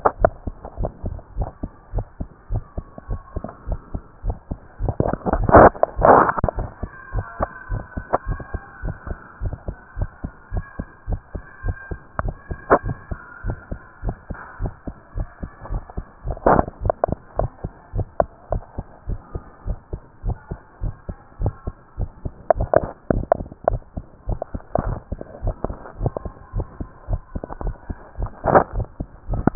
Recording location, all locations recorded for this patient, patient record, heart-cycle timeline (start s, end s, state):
tricuspid valve (TV)
aortic valve (AV)+pulmonary valve (PV)+tricuspid valve (TV)+mitral valve (MV)
#Age: Child
#Sex: Male
#Height: 148.0 cm
#Weight: 35.8 kg
#Pregnancy status: False
#Murmur: Absent
#Murmur locations: nan
#Most audible location: nan
#Systolic murmur timing: nan
#Systolic murmur shape: nan
#Systolic murmur grading: nan
#Systolic murmur pitch: nan
#Systolic murmur quality: nan
#Diastolic murmur timing: nan
#Diastolic murmur shape: nan
#Diastolic murmur grading: nan
#Diastolic murmur pitch: nan
#Diastolic murmur quality: nan
#Outcome: Abnormal
#Campaign: 2015 screening campaign
0.00	7.12	unannotated
7.12	7.26	S1
7.26	7.38	systole
7.38	7.50	S2
7.50	7.70	diastole
7.70	7.84	S1
7.84	7.94	systole
7.94	8.04	S2
8.04	8.26	diastole
8.26	8.40	S1
8.40	8.52	systole
8.52	8.62	S2
8.62	8.84	diastole
8.84	8.98	S1
8.98	9.08	systole
9.08	9.18	S2
9.18	9.40	diastole
9.40	9.54	S1
9.54	9.66	systole
9.66	9.76	S2
9.76	9.98	diastole
9.98	10.10	S1
10.10	10.22	systole
10.22	10.32	S2
10.32	10.52	diastole
10.52	10.64	S1
10.64	10.76	systole
10.76	10.86	S2
10.86	11.06	diastole
11.06	11.20	S1
11.20	11.32	systole
11.32	11.42	S2
11.42	11.62	diastole
11.62	11.76	S1
11.76	11.88	systole
11.88	11.98	S2
11.98	12.20	diastole
12.20	12.36	S1
12.36	12.48	systole
12.48	12.58	S2
12.58	12.84	diastole
12.84	12.98	S1
12.98	13.10	systole
13.10	13.20	S2
13.20	13.42	diastole
13.42	13.56	S1
13.56	13.70	systole
13.70	13.80	S2
13.80	14.04	diastole
14.04	14.18	S1
14.18	14.28	systole
14.28	14.38	S2
14.38	14.60	diastole
14.60	14.74	S1
14.74	14.85	systole
14.85	14.94	S2
14.94	15.14	diastole
15.14	15.28	S1
15.28	15.40	systole
15.40	15.50	S2
15.50	15.72	diastole
15.72	15.84	S1
15.84	15.96	systole
15.96	16.06	S2
16.06	16.24	diastole
16.24	16.38	S1
16.38	16.44	systole
16.44	16.58	S2
16.58	16.80	diastole
16.80	16.94	S1
16.94	17.08	systole
17.08	17.20	S2
17.20	17.38	diastole
17.38	17.50	S1
17.50	17.62	systole
17.62	17.72	S2
17.72	17.94	diastole
17.94	18.08	S1
18.08	18.18	systole
18.18	18.28	S2
18.28	18.50	diastole
18.50	18.64	S1
18.64	18.76	systole
18.76	18.86	S2
18.86	19.06	diastole
19.06	19.20	S1
19.20	19.34	systole
19.34	19.44	S2
19.44	19.64	diastole
19.64	19.78	S1
19.78	19.92	systole
19.92	20.02	S2
20.02	20.26	diastole
20.26	20.40	S1
20.40	20.49	systole
20.49	20.60	S2
20.60	20.82	diastole
20.82	20.96	S1
20.96	21.07	systole
21.07	21.18	S2
21.18	21.38	diastole
21.38	21.56	S1
21.56	21.65	systole
21.65	21.76	S2
21.76	21.98	diastole
21.98	22.12	S1
22.12	22.24	systole
22.24	22.32	S2
22.32	29.55	unannotated